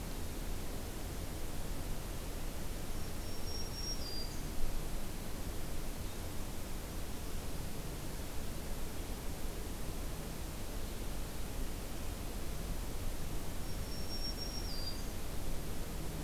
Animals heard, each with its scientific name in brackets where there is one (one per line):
Black-throated Green Warbler (Setophaga virens)